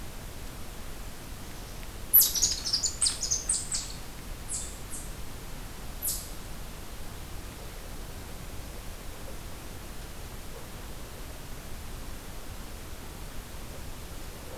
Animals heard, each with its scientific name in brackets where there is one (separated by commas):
Red Squirrel (Tamiasciurus hudsonicus)